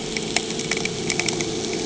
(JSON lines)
{"label": "anthrophony, boat engine", "recorder": "HydroMoth"}